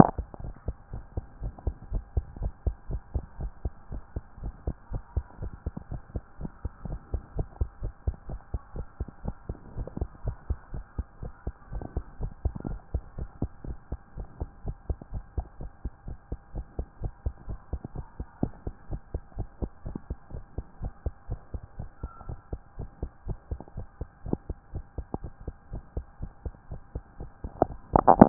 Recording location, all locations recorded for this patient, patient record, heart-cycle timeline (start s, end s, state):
tricuspid valve (TV)
aortic valve (AV)+pulmonary valve (PV)+tricuspid valve (TV)+mitral valve (MV)
#Age: Child
#Sex: Female
#Height: 128.0 cm
#Weight: 34.3 kg
#Pregnancy status: False
#Murmur: Absent
#Murmur locations: nan
#Most audible location: nan
#Systolic murmur timing: nan
#Systolic murmur shape: nan
#Systolic murmur grading: nan
#Systolic murmur pitch: nan
#Systolic murmur quality: nan
#Diastolic murmur timing: nan
#Diastolic murmur shape: nan
#Diastolic murmur grading: nan
#Diastolic murmur pitch: nan
#Diastolic murmur quality: nan
#Outcome: Normal
#Campaign: 2014 screening campaign
0.00	0.14	S1
0.14	0.18	systole
0.18	0.30	S2
0.30	0.44	diastole
0.44	0.56	S1
0.56	0.64	systole
0.64	0.78	S2
0.78	0.92	diastole
0.92	1.04	S1
1.04	1.14	systole
1.14	1.26	S2
1.26	1.40	diastole
1.40	1.54	S1
1.54	1.62	systole
1.62	1.76	S2
1.76	1.88	diastole
1.88	2.04	S1
2.04	2.10	systole
2.10	2.24	S2
2.24	2.38	diastole
2.38	2.52	S1
2.52	2.60	systole
2.60	2.74	S2
2.74	2.88	diastole
2.88	3.02	S1
3.02	3.10	systole
3.10	3.26	S2
3.26	3.38	diastole
3.38	3.52	S1
3.52	3.62	systole
3.62	3.74	S2
3.74	3.90	diastole
3.90	4.02	S1
4.02	4.12	systole
4.12	4.24	S2
4.24	4.40	diastole
4.40	4.54	S1
4.54	4.64	systole
4.64	4.76	S2
4.76	4.90	diastole
4.90	5.02	S1
5.02	5.12	systole
5.12	5.26	S2
5.26	5.40	diastole
5.40	5.54	S1
5.54	5.62	systole
5.62	5.74	S2
5.74	5.90	diastole
5.90	6.02	S1
6.02	6.14	systole
6.14	6.24	S2
6.24	6.40	diastole
6.40	6.52	S1
6.52	6.64	systole
6.64	6.72	S2
6.72	6.86	diastole
6.86	7.00	S1
7.00	7.12	systole
7.12	7.22	S2
7.22	7.34	diastole
7.34	7.48	S1
7.48	7.56	systole
7.56	7.70	S2
7.70	7.82	diastole
7.82	7.94	S1
7.94	8.04	systole
8.04	8.16	S2
8.16	8.28	diastole
8.28	8.40	S1
8.40	8.50	systole
8.50	8.62	S2
8.62	8.76	diastole
8.76	8.86	S1
8.86	8.96	systole
8.96	9.08	S2
9.08	9.24	diastole
9.24	9.36	S1
9.36	9.46	systole
9.46	9.56	S2
9.56	9.74	diastole
9.74	9.88	S1
9.88	9.96	systole
9.96	10.10	S2
10.10	10.24	diastole
10.24	10.38	S1
10.38	10.46	systole
10.46	10.60	S2
10.60	10.72	diastole
10.72	10.84	S1
10.84	10.94	systole
10.94	11.06	S2
11.06	11.22	diastole
11.22	11.32	S1
11.32	11.46	systole
11.46	11.54	S2
11.54	11.72	diastole
11.72	11.84	S1
11.84	11.94	systole
11.94	12.06	S2
12.06	12.20	diastole
12.20	12.34	S1
12.34	12.44	systole
12.44	12.54	S2
12.54	12.66	diastole
12.66	12.80	S1
12.80	12.90	systole
12.90	13.02	S2
13.02	13.18	diastole
13.18	13.30	S1
13.30	13.40	systole
13.40	13.52	S2
13.52	13.68	diastole
13.68	13.78	S1
13.78	13.88	systole
13.88	13.98	S2
13.98	14.16	diastole
14.16	14.28	S1
14.28	14.40	systole
14.40	14.50	S2
14.50	14.64	diastole
14.64	14.76	S1
14.76	14.86	systole
14.86	15.00	S2
15.00	15.12	diastole
15.12	15.24	S1
15.24	15.34	systole
15.34	15.48	S2
15.48	15.60	diastole
15.60	15.70	S1
15.70	15.84	systole
15.84	15.94	S2
15.94	16.08	diastole
16.08	16.18	S1
16.18	16.28	systole
16.28	16.38	S2
16.38	16.54	diastole
16.54	16.66	S1
16.66	16.78	systole
16.78	16.88	S2
16.88	17.02	diastole
17.02	17.14	S1
17.14	17.22	systole
17.22	17.34	S2
17.34	17.48	diastole
17.48	17.60	S1
17.60	17.72	systole
17.72	17.82	S2
17.82	17.96	diastole
17.96	18.06	S1
18.06	18.18	systole
18.18	18.28	S2
18.28	18.42	diastole
18.42	18.54	S1
18.54	18.66	systole
18.66	18.76	S2
18.76	18.90	diastole
18.90	19.00	S1
19.00	19.10	systole
19.10	19.22	S2
19.22	19.38	diastole
19.38	19.48	S1
19.48	19.58	systole
19.58	19.70	S2
19.70	19.86	diastole
19.86	20.00	S1
20.00	20.10	systole
20.10	20.20	S2
20.20	20.34	diastole
20.34	20.44	S1
20.44	20.54	systole
20.54	20.64	S2
20.64	20.80	diastole
20.80	20.92	S1
20.92	21.02	systole
21.02	21.14	S2
21.14	21.30	diastole
21.30	21.40	S1
21.40	21.50	systole
21.50	21.62	S2
21.62	21.78	diastole
21.78	21.90	S1
21.90	22.02	systole
22.02	22.10	S2
22.10	22.26	diastole
22.26	22.40	S1
22.40	22.52	systole
22.52	22.62	S2
22.62	22.78	diastole
22.78	22.90	S1
22.90	22.98	systole
22.98	23.10	S2
23.10	23.26	diastole
23.26	23.38	S1
23.38	23.50	systole
23.50	23.60	S2
23.60	23.76	diastole
23.76	23.88	S1
23.88	24.00	systole
24.00	24.10	S2
24.10	24.26	diastole
24.26	24.40	S1
24.40	24.46	systole
24.46	24.58	S2
24.58	24.74	diastole
24.74	24.86	S1
24.86	24.98	systole
24.98	25.06	S2
25.06	25.22	diastole
25.22	25.32	S1
25.32	25.46	systole
25.46	25.56	S2
25.56	25.72	diastole
25.72	25.84	S1
25.84	25.96	systole
25.96	26.06	S2
26.06	26.22	diastole
26.22	26.32	S1
26.32	26.44	systole
26.44	26.54	S2
26.54	26.70	diastole
26.70	26.80	S1
26.80	26.94	systole
26.94	27.04	S2
27.04	27.20	diastole
27.20	27.30	S1
27.30	27.36	systole
27.36	27.40	S2
27.40	27.58	diastole
27.58	27.70	S1
27.70	27.80	systole
27.80	27.84	S2
27.84	27.98	diastole
27.98	28.16	S1
28.16	28.18	systole
28.18	28.29	S2